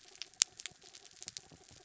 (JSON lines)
{"label": "anthrophony, mechanical", "recorder": "SoundTrap 300"}